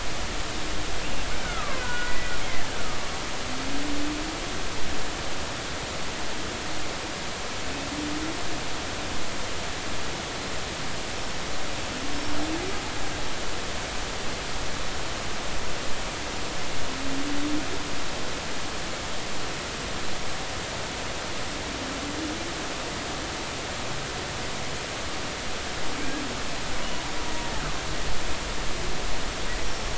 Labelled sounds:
1.4	2.4	killer whale, Bigg's (transient), 0.99 to 2.0 kHz

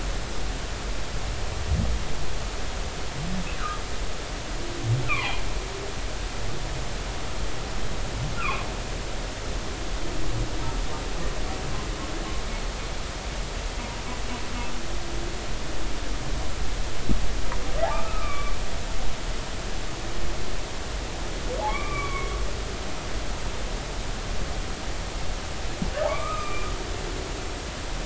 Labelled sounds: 5.1	5.4	humpback whale, 0.80 to 2.7 kHz
8.4	8.7	humpback whale, 0.99 to 2.8 kHz
17.9	18.5	humpback whale, 1.1 to 2.4 kHz
21.7	22.3	humpback whale, 0.99 to 2.4 kHz
26.1	26.7	humpback whale, 0.96 to 2.6 kHz

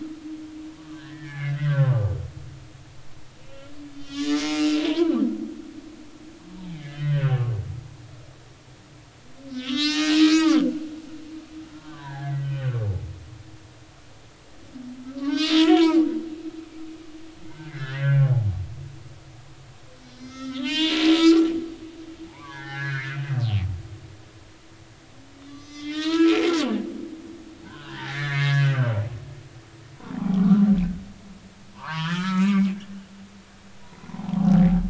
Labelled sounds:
0.7	2.2	humpback whale, 0.93 to 2.4 kHz
3.4	5.1	humpback whale, 0.90 to 4.9 kHz
6.7	7.5	humpback whale, 1.0 to 3.3 kHz
9.5	10.6	humpback whale, 0.80 to 6.1 kHz
11.7	12.8	humpback whale, 0.80 to 3.1 kHz
15.2	16.1	humpback whale, 0.90 to 4.1 kHz
17.5	18.3	humpback whale, 1.3 to 2.1 kHz
20.0	21.5	humpback whale, 0.86 to 6.5 kHz
22.3	23.2	humpback whale, 0.80 to 4.3 kHz
25.5	26.4	humpback whale, 0.93 to 6.2 kHz
27.6	29.0	humpback whale, 1.1 to 4.2 kHz
30.1	30.4	humpback whale, 0.80 to 0.86 kHz
31.7	32.7	humpback whale, 0.86 to 6.7 kHz
33.8	34.2	humpback whale, 0.90 to 1.1 kHz

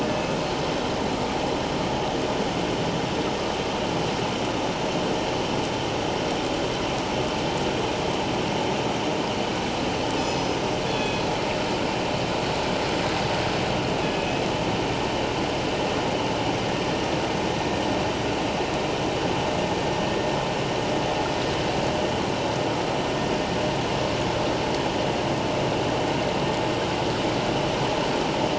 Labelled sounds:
0.1	0.4	killer whale, northern resident, G clan, 2.5 to 2.6 kHz
10.2	11.2	killer whale, northern resident, G clan, 2.5 to 6.0 kHz
14.1	14.4	killer whale, northern resident, G clan, 2.5 to 2.6 kHz

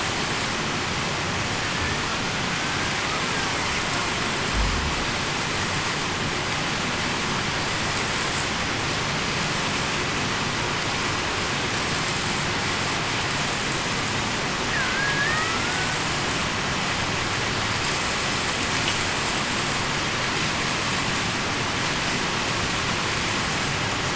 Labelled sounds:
14.7	15.6	killer whale, Bigg's (transient), 1.2 to 2.0 kHz

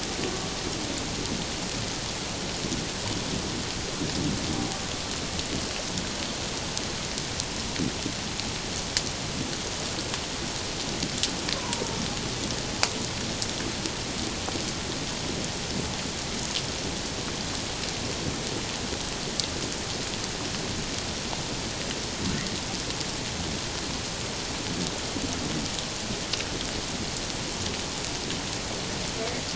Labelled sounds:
11.5	12.0	humpback whale, 0.88 to 1.2 kHz

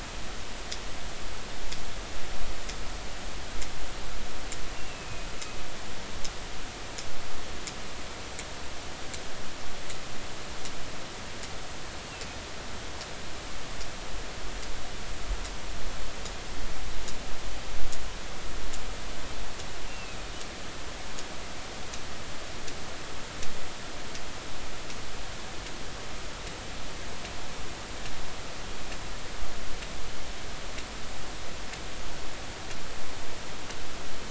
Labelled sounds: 4.8	5.3	killer whale, northern resident, A clan, AA subclan, A05 pod, call N04, 2.4 to 2.8 kHz
12.1	12.4	killer whale, northern resident, A clan, AA subclan, A05 pod, call N04, 2.5 to 2.8 kHz
19.9	20.2	killer whale, northern resident, A clan, AA subclan, A05 pod, call N04, 2.5 to 2.8 kHz

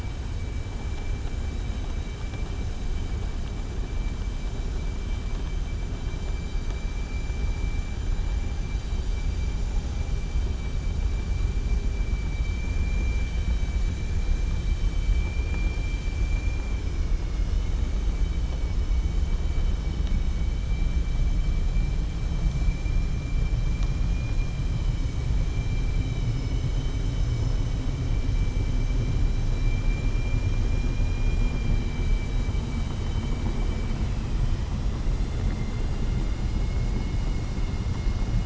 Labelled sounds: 15.4	16.1	vessel noise, 0.83 to 4.8 kHz
17.2	17.8	vessel noise, 1.3 to 3.8 kHz
35.2	35.9	vessel noise, 1.4 to 2.8 kHz

